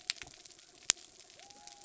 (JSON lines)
{"label": "anthrophony, mechanical", "recorder": "SoundTrap 300"}
{"label": "biophony", "recorder": "SoundTrap 300"}